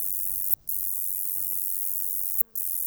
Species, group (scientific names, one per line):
Polysarcus denticauda
Orthoptera